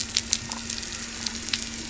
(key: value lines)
label: biophony
recorder: SoundTrap 300